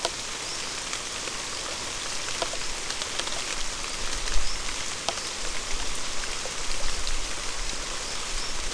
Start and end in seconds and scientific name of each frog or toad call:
none